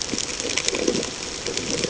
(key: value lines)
label: ambient
recorder: HydroMoth